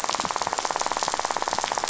{"label": "biophony, rattle", "recorder": "SoundTrap 500"}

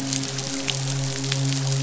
{"label": "biophony, midshipman", "recorder": "SoundTrap 500"}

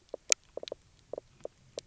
{"label": "biophony, knock croak", "recorder": "SoundTrap 300"}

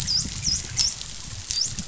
{"label": "biophony, dolphin", "recorder": "SoundTrap 500"}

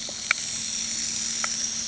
{"label": "anthrophony, boat engine", "recorder": "HydroMoth"}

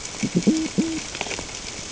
{"label": "ambient", "recorder": "HydroMoth"}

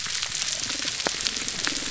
{"label": "biophony, damselfish", "recorder": "SoundTrap 300"}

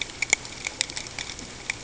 {"label": "ambient", "recorder": "HydroMoth"}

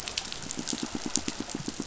{"label": "biophony, pulse", "recorder": "SoundTrap 500"}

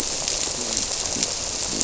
{"label": "biophony", "recorder": "SoundTrap 300"}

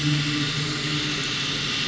{"label": "anthrophony, boat engine", "recorder": "SoundTrap 500"}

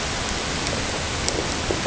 {"label": "ambient", "recorder": "HydroMoth"}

